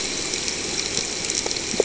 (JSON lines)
{"label": "ambient", "recorder": "HydroMoth"}